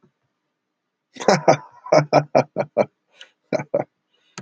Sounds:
Laughter